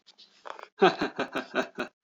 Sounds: Laughter